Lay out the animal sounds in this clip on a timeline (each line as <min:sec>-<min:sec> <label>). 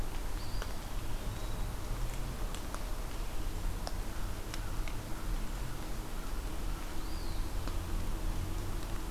0:00.3-0:01.9 Eastern Wood-Pewee (Contopus virens)
0:06.8-0:07.6 Eastern Wood-Pewee (Contopus virens)